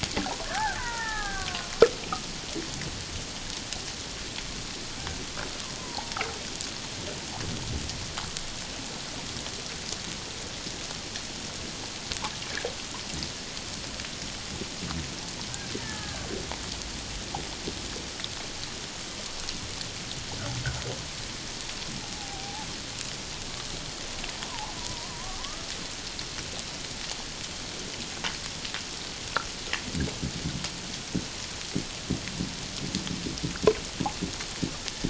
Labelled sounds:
0.4	1.8	killer whale, Bigg's (transient), 0.78 to 2.0 kHz
5.8	6.1	killer whale, Bigg's (transient), 0.78 to 1.1 kHz
15.8	16.3	killer whale, Bigg's (transient), 1.2 to 1.8 kHz
22.0	22.7	killer whale, Bigg's (transient), 0.78 to 0.94 kHz
24.4	25.7	killer whale, Bigg's (transient), 0.78 to 1.4 kHz

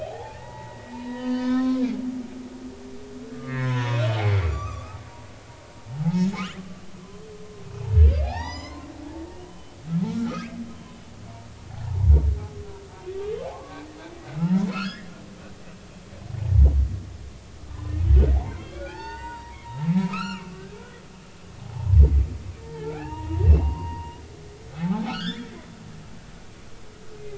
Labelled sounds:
0.0	2.0	humpback whale, 0.80 to 5.6 kHz
3.3	5.0	humpback whale, 0.80 to 6.4 kHz
5.9	6.4	humpback whale, 0.80 to 5.3 kHz
8.2	8.9	humpback whale, 0.80 to 6.4 kHz
9.5	12.1	humpback whale, 0.80 to 3.1 kHz
13.5	15.1	humpback whale, 1.0 to 4.4 kHz
18.4	19.6	humpback whale, 0.80 to 7.6 kHz
20.0	20.5	humpback whale, 0.96 to 5.8 kHz
21.6	24.2	humpback whale, 0.80 to 2.9 kHz
24.7	25.5	humpback whale, 0.80 to 5.4 kHz

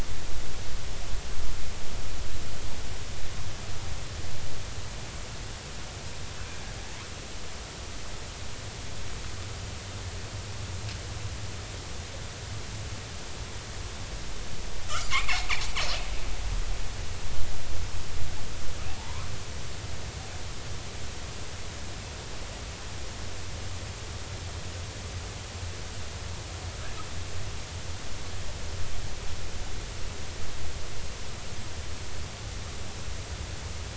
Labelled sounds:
15.1	15.5	killer whale, northern resident, G clan, 0.80 to 2.6 kHz
18.9	19.3	killer whale, northern resident, G clan, call N40, 0.80 to 1.2 kHz

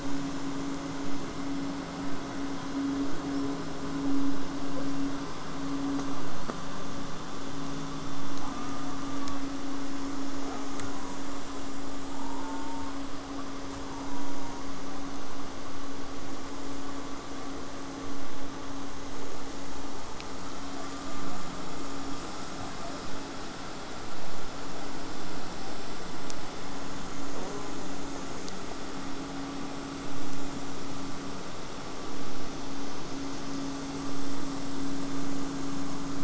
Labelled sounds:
3.3	3.6	killer whale, southern resident, J pod, whistle, 4.8 to 5.8 kHz
8.4	9.5	killer whale, southern resident, J pod, call S04, 0.64 to 2.3 kHz
10.4	11.2	killer whale, southern resident, J pod, call S04, 0.28 to 1.7 kHz
12.2	13.0	killer whale, southern resident, J pod, call S04, 0.60 to 1.5 kHz
13.9	14.6	killer whale, southern resident, J pod, call S04, 0.56 to 1.4 kHz
27.3	27.9	killer whale, southern resident, J pod, call S04, 0.21 to 1.7 kHz

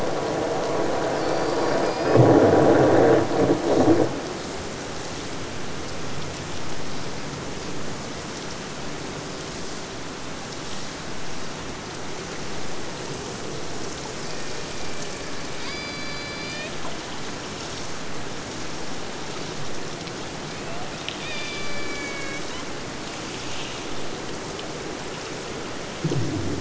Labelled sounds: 1.1	2.4	killer whale, Bigg's (transient), AT1 transient, 2.2 to 6.0 kHz
14.2	16.8	killer whale, Bigg's (transient), AT1 transient, 1.0 to 4.9 kHz
20.5	22.7	killer whale, Bigg's (transient), AT1 transient, 0.47 to 4.9 kHz

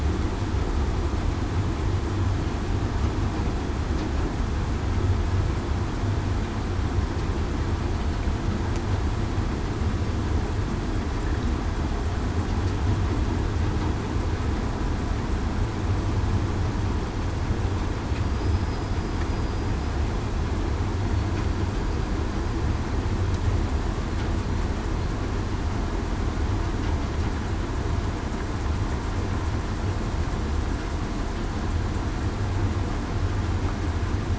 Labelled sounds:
18.3	18.9	killer whale, southern resident, 4.9 to 5.1 kHz
19.3	19.7	killer whale, southern resident, 4.85 to 4.92 kHz

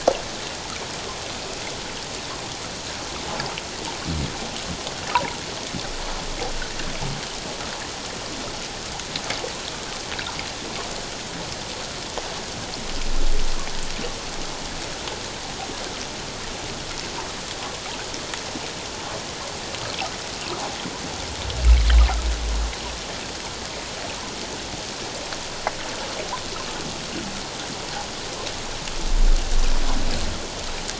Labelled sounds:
5.1	5.4	water noise, 0.88 to 1.6 kHz

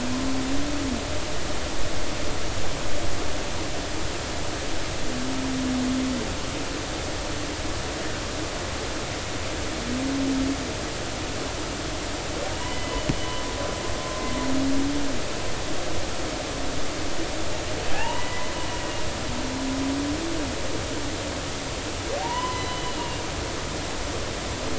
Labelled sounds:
12.6	13.4	humpback whale, 1.9 to 3.1 kHz
14.0	14.3	humpback whale, 1.0 to 1.1 kHz
17.9	18.5	humpback whale, 0.80 to 3.0 kHz
22.2	23.2	humpback whale, 0.80 to 4.1 kHz

